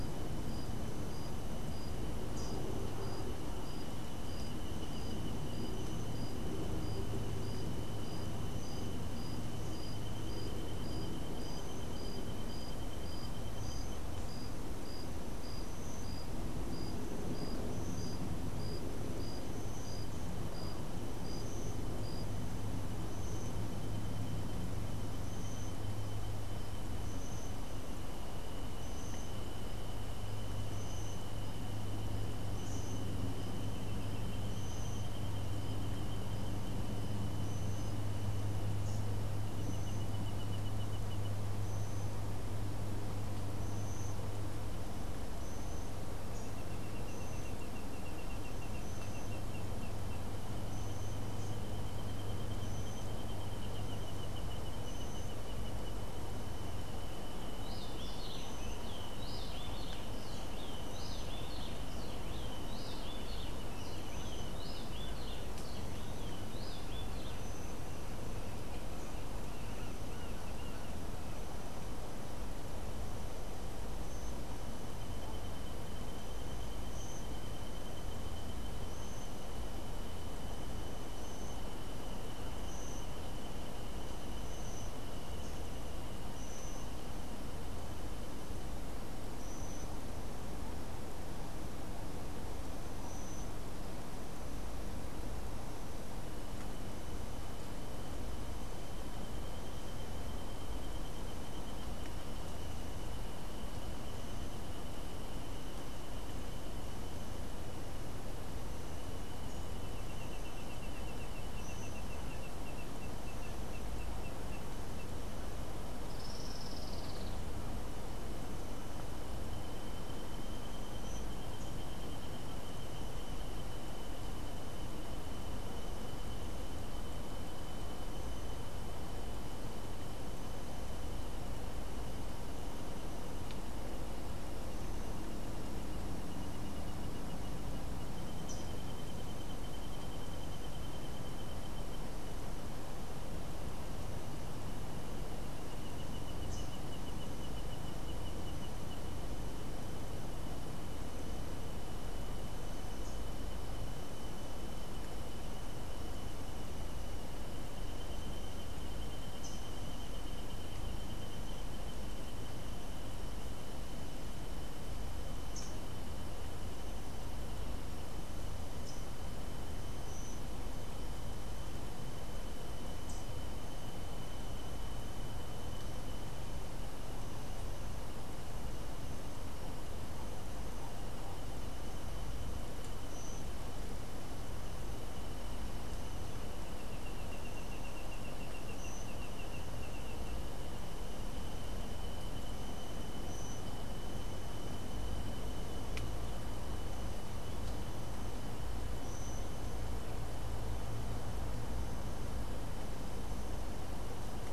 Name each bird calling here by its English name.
Rufous-breasted Wren, Olivaceous Woodcreeper, Rufous-capped Warbler